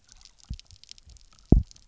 {"label": "biophony, double pulse", "recorder": "SoundTrap 300"}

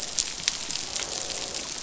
{"label": "biophony, croak", "recorder": "SoundTrap 500"}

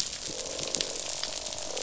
{"label": "biophony, croak", "recorder": "SoundTrap 500"}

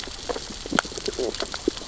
{"label": "biophony, sea urchins (Echinidae)", "recorder": "SoundTrap 600 or HydroMoth"}
{"label": "biophony, stridulation", "recorder": "SoundTrap 600 or HydroMoth"}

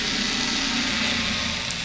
{"label": "anthrophony, boat engine", "recorder": "SoundTrap 500"}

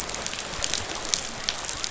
{"label": "biophony", "recorder": "SoundTrap 500"}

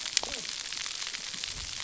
{"label": "biophony, cascading saw", "recorder": "SoundTrap 300"}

